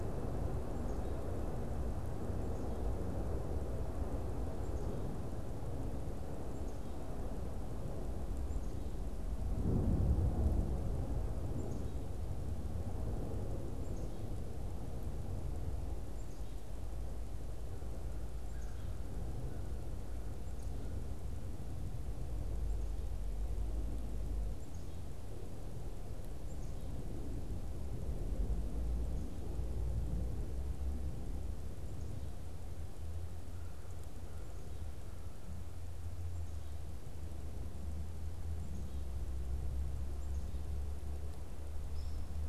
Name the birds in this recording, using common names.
unidentified bird, Black-capped Chickadee, American Crow